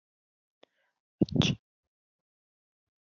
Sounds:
Sneeze